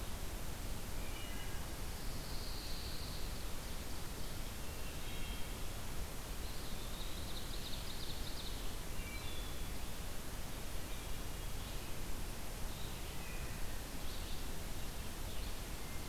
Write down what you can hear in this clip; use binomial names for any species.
Hylocichla mustelina, Setophaga pinus, Seiurus aurocapilla, Contopus virens, Vireo olivaceus